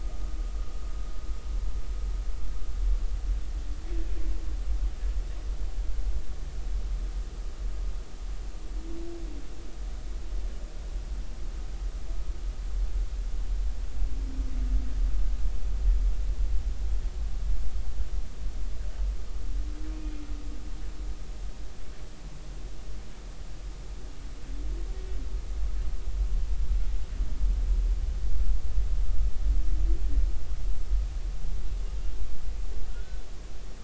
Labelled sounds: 19.9	20.2	humpback whale, 2.3 to 2.5 kHz
32.9	33.2	humpback whale, 1.3 to 1.6 kHz

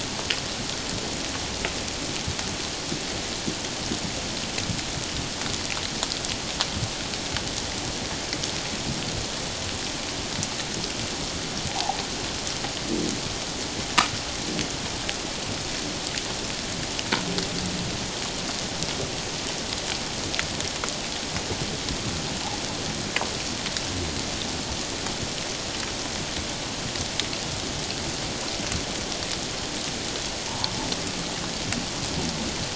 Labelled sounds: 11.7	12.0	water noise, 0.78 to 1.0 kHz
30.5	30.8	water noise, 0.81 to 1.2 kHz

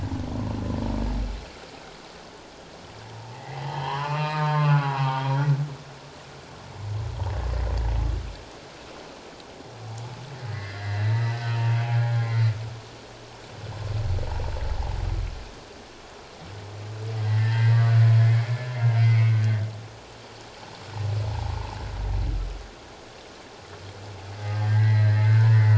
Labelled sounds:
3.1	5.2	humpback whale, 0.78 to 4.2 kHz
10.5	11.4	humpback whale, 1.6 to 5.1 kHz
12.1	12.4	humpback whale, 1.9 to 2.3 kHz
17.2	18.6	humpback whale, 1.7 to 2.3 kHz
19.1	19.6	humpback whale, 1.5 to 2.3 kHz
21.3	21.8	humpback whale, 0.78 to 1.2 kHz
24.5	25.7	humpback whale, 1.5 to 4.2 kHz

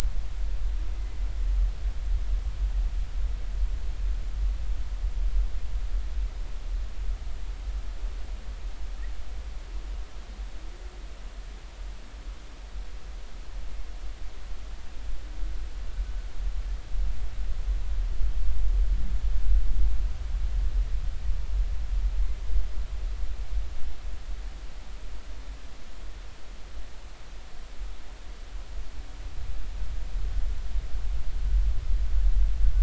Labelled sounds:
1.0	1.2	humpback whale, 2.0 to 2.1 kHz

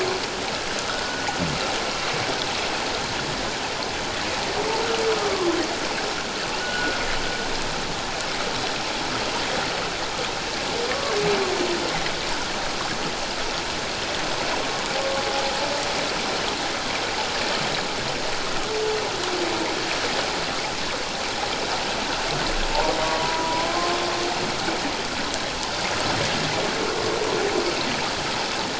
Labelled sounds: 0.9	1.3	humpback whale, 1.2 to 1.5 kHz
5.2	5.5	humpback whale, 0.97 to 1.3 kHz
6.6	7.0	humpback whale, 1.3 to 1.5 kHz
10.9	11.1	humpback whale, 1.0 to 1.2 kHz
23.2	24.0	humpback whale, 0.94 to 1.1 kHz

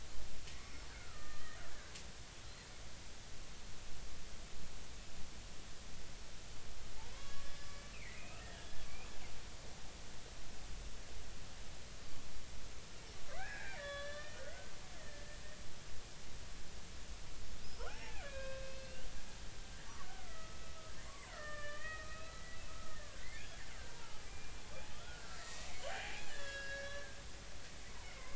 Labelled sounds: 0.5	1.6	killer whale, Bigg's (transient), 1.2 to 5.4 kHz
7.1	8.8	killer whale, Bigg's (transient), 0.99 to 3.4 kHz
13.3	14.7	killer whale, Bigg's (transient), 1.1 to 4.2 kHz
15.0	15.3	killer whale, Bigg's (transient), 1.7 to 2.0 kHz
17.6	19.1	killer whale, Bigg's (transient), 0.80 to 5.3 kHz
20.2	23.5	killer whale, Bigg's (transient), 0.90 to 3.2 kHz
23.8	24.5	killer whale, Bigg's (transient), 0.80 to 2.5 kHz
25.0	27.1	killer whale, Bigg's (transient), 0.80 to 5.7 kHz
28.0	28.3	killer whale, Bigg's (transient), 2.0 to 2.3 kHz

